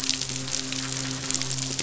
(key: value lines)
label: biophony, midshipman
recorder: SoundTrap 500